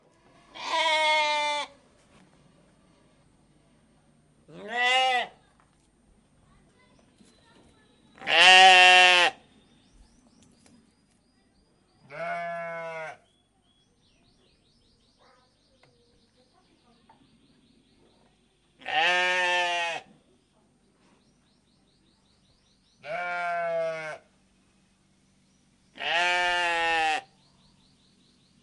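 0.5s Sheep bleating closely indoors on a farm. 1.8s
4.5s Sheep bleating closely indoors on a farm. 5.3s
8.1s Sheep bleating closely indoors on a farm. 9.4s
9.7s A bird chirps repeatedly in the distance. 12.0s
12.1s Sheep bleating closely indoors on a farm. 13.2s
13.9s A bird chirps repeatedly in the distance. 18.5s
18.8s Sheep bleating closely indoors on a farm. 20.1s
21.0s A bird chirps repeatedly in the distance. 22.9s
22.9s Sheep bleating closely indoors on a farm. 24.2s
25.9s Sheep bleating closely indoors on a farm. 27.3s
27.3s A bird chirps repeatedly in the distance. 28.6s

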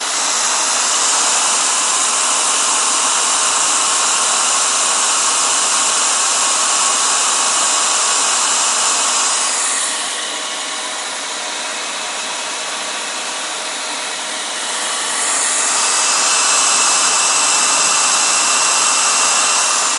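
0.0s A brushless vacuum cleaner changes speeds. 20.0s

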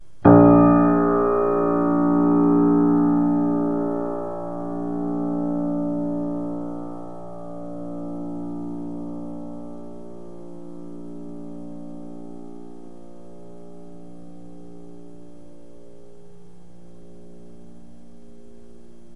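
0.2s A clear piano note is played close by and slowly fades out. 19.2s

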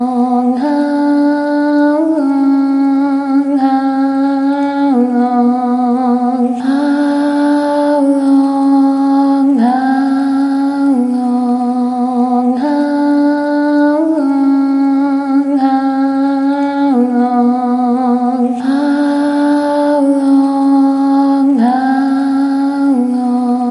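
0.0s A woman is singing a vocal song repeatedly. 23.7s

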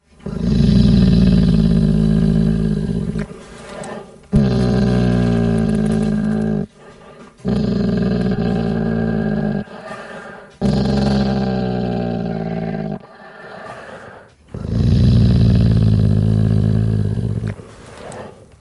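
0.1s A dog emits a single low, menacing growl. 3.2s
4.3s A dog emits a single, low, menacing growl. 6.6s
7.4s A dog emits a single low, menacing growl. 9.6s
10.7s A dog emits a single low, menacing growl. 12.9s
14.6s A dog emits a single low, menacing growl. 17.5s

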